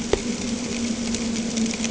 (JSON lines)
{"label": "anthrophony, boat engine", "recorder": "HydroMoth"}